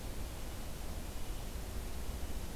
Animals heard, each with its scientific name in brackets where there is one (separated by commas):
Red-breasted Nuthatch (Sitta canadensis)